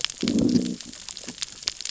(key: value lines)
label: biophony, growl
recorder: SoundTrap 600 or HydroMoth